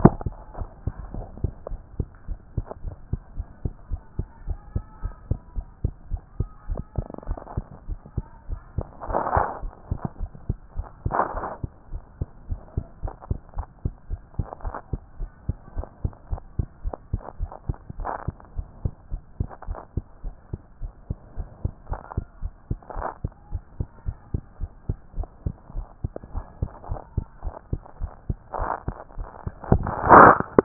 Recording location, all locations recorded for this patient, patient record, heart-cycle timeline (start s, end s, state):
tricuspid valve (TV)
aortic valve (AV)+pulmonary valve (PV)+tricuspid valve (TV)+mitral valve (MV)
#Age: Child
#Sex: Female
#Height: 132.0 cm
#Weight: 33.4 kg
#Pregnancy status: False
#Murmur: Absent
#Murmur locations: nan
#Most audible location: nan
#Systolic murmur timing: nan
#Systolic murmur shape: nan
#Systolic murmur grading: nan
#Systolic murmur pitch: nan
#Systolic murmur quality: nan
#Diastolic murmur timing: nan
#Diastolic murmur shape: nan
#Diastolic murmur grading: nan
#Diastolic murmur pitch: nan
#Diastolic murmur quality: nan
#Outcome: Abnormal
#Campaign: 2014 screening campaign
0.00	0.20	S1
0.20	0.34	systole
0.34	0.44	S2
0.44	0.58	diastole
0.58	0.70	S1
0.70	0.84	systole
0.84	0.94	S2
0.94	1.12	diastole
1.12	1.26	S1
1.26	1.40	systole
1.40	1.54	S2
1.54	1.70	diastole
1.70	1.82	S1
1.82	1.96	systole
1.96	2.10	S2
2.10	2.28	diastole
2.28	2.38	S1
2.38	2.54	systole
2.54	2.66	S2
2.66	2.82	diastole
2.82	2.94	S1
2.94	3.06	systole
3.06	3.20	S2
3.20	3.36	diastole
3.36	3.48	S1
3.48	3.62	systole
3.62	3.76	S2
3.76	3.92	diastole
3.92	4.04	S1
4.04	4.16	systole
4.16	4.30	S2
4.30	4.44	diastole
4.44	4.58	S1
4.58	4.72	systole
4.72	4.86	S2
4.86	5.02	diastole
5.02	5.16	S1
5.16	5.28	systole
5.28	5.38	S2
5.38	5.54	diastole
5.54	5.68	S1
5.68	5.82	systole
5.82	5.96	S2
5.96	6.10	diastole
6.10	6.24	S1
6.24	6.36	systole
6.36	6.48	S2
6.48	6.66	diastole
6.66	6.80	S1
6.80	6.94	systole
6.94	7.06	S2
7.06	7.24	diastole
7.24	7.38	S1
7.38	7.54	systole
7.54	7.68	S2
7.68	7.86	diastole
7.86	7.98	S1
7.98	8.14	systole
8.14	8.28	S2
8.28	8.46	diastole
8.46	8.60	S1
8.60	8.76	systole
8.76	8.90	S2
8.90	9.08	diastole
9.08	9.22	S1
9.22	9.34	systole
9.34	9.48	S2
9.48	9.62	diastole
9.62	9.72	S1
9.72	9.88	systole
9.88	10.02	S2
10.02	10.20	diastole
10.20	10.30	S1
10.30	10.46	systole
10.46	10.60	S2
10.60	10.76	diastole
10.76	10.90	S1
10.90	11.02	systole
11.02	11.16	S2
11.16	11.32	diastole
11.32	11.44	S1
11.44	11.60	systole
11.60	11.70	S2
11.70	11.90	diastole
11.90	12.02	S1
12.02	12.18	systole
12.18	12.30	S2
12.30	12.48	diastole
12.48	12.62	S1
12.62	12.74	systole
12.74	12.84	S2
12.84	13.02	diastole
13.02	13.12	S1
13.12	13.26	systole
13.26	13.42	S2
13.42	13.56	diastole
13.56	13.66	S1
13.66	13.82	systole
13.82	13.96	S2
13.96	14.10	diastole
14.10	14.20	S1
14.20	14.36	systole
14.36	14.50	S2
14.50	14.64	diastole
14.64	14.74	S1
14.74	14.90	systole
14.90	15.00	S2
15.00	15.18	diastole
15.18	15.30	S1
15.30	15.46	systole
15.46	15.60	S2
15.60	15.76	diastole
15.76	15.86	S1
15.86	16.00	systole
16.00	16.12	S2
16.12	16.30	diastole
16.30	16.40	S1
16.40	16.54	systole
16.54	16.70	S2
16.70	16.86	diastole
16.86	16.98	S1
16.98	17.10	systole
17.10	17.22	S2
17.22	17.40	diastole
17.40	17.50	S1
17.50	17.66	systole
17.66	17.76	S2
17.76	17.96	diastole
17.96	18.08	S1
18.08	18.26	systole
18.26	18.36	S2
18.36	18.56	diastole
18.56	18.66	S1
18.66	18.82	systole
18.82	18.92	S2
18.92	19.10	diastole
19.10	19.22	S1
19.22	19.36	systole
19.36	19.52	S2
19.52	19.68	diastole
19.68	19.78	S1
19.78	19.94	systole
19.94	20.04	S2
20.04	20.24	diastole
20.24	20.34	S1
20.34	20.50	systole
20.50	20.60	S2
20.60	20.80	diastole
20.80	20.92	S1
20.92	21.08	systole
21.08	21.18	S2
21.18	21.38	diastole
21.38	21.50	S1
21.50	21.62	systole
21.62	21.72	S2
21.72	21.90	diastole
21.90	22.00	S1
22.00	22.16	systole
22.16	22.26	S2
22.26	22.42	diastole
22.42	22.52	S1
22.52	22.68	systole
22.68	22.78	S2
22.78	22.94	diastole
22.94	23.06	S1
23.06	23.22	systole
23.22	23.32	S2
23.32	23.48	diastole
23.48	23.62	S1
23.62	23.78	systole
23.78	23.88	S2
23.88	24.04	diastole
24.04	24.16	S1
24.16	24.30	systole
24.30	24.42	S2
24.42	24.60	diastole
24.60	24.70	S1
24.70	24.88	systole
24.88	24.98	S2
24.98	25.16	diastole
25.16	25.28	S1
25.28	25.44	systole
25.44	25.58	S2
25.58	25.74	diastole
25.74	25.86	S1
25.86	26.02	systole
26.02	26.16	S2
26.16	26.32	diastole
26.32	26.44	S1
26.44	26.60	systole
26.60	26.70	S2
26.70	26.88	diastole
26.88	27.00	S1
27.00	27.16	systole
27.16	27.28	S2
27.28	27.44	diastole
27.44	27.54	S1
27.54	27.70	systole
27.70	27.84	S2
27.84	28.00	diastole
28.00	28.12	S1
28.12	28.28	systole
28.28	28.38	S2
28.38	28.56	diastole
28.56	28.70	S1
28.70	28.86	systole
28.86	28.96	S2
28.96	29.14	diastole
29.14	29.28	S1
29.28	29.44	systole
29.44	29.54	S2
29.54	29.70	diastole
29.70	29.88	S1
29.88	29.96	systole
29.96	30.00	S2
30.00	30.14	diastole
30.14	30.32	S1
30.32	30.52	systole
30.52	30.64	S2